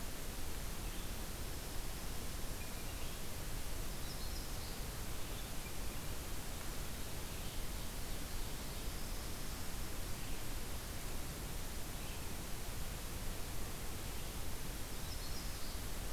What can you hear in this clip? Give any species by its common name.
Yellow-rumped Warbler, Black-throated Blue Warbler, Red-eyed Vireo